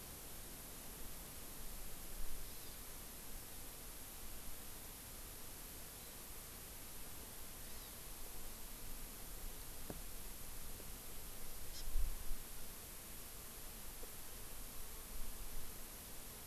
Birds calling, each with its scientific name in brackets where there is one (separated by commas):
Hawaii Amakihi (Chlorodrepanis virens)